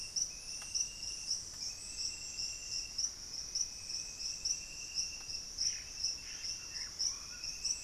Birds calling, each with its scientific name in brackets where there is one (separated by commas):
Black-faced Antthrush (Formicarius analis), Yellow-rumped Cacique (Cacicus cela)